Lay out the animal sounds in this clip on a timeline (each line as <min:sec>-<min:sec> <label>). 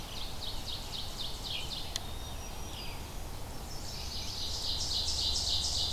0:00.0-0:01.9 Ovenbird (Seiurus aurocapilla)
0:00.0-0:05.9 Red-eyed Vireo (Vireo olivaceus)
0:01.5-0:02.5 Black-capped Chickadee (Poecile atricapillus)
0:02.1-0:03.3 Black-throated Green Warbler (Setophaga virens)
0:03.5-0:04.6 Chestnut-sided Warbler (Setophaga pensylvanica)
0:03.5-0:05.9 Ovenbird (Seiurus aurocapilla)